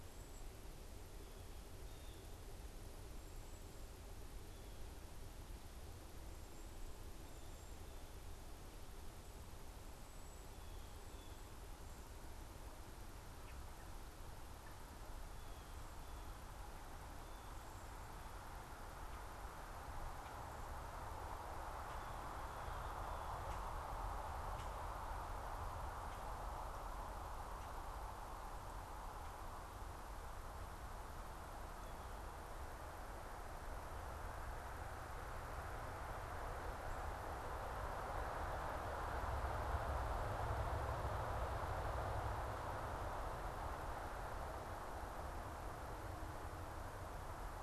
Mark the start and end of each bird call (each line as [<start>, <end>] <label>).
[0.00, 10.80] unidentified bird
[1.60, 11.90] Blue Jay (Cyanocitta cristata)
[13.00, 14.10] Common Grackle (Quiscalus quiscula)
[22.90, 25.00] Common Grackle (Quiscalus quiscula)